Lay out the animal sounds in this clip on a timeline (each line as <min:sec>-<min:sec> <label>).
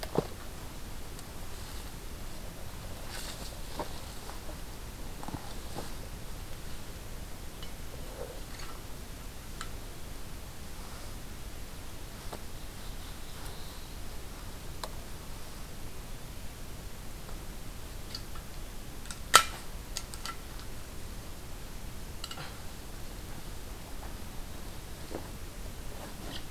0:12.5-0:14.1 Black-throated Blue Warbler (Setophaga caerulescens)